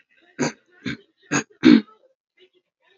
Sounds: Throat clearing